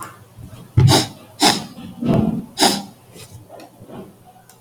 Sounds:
Sniff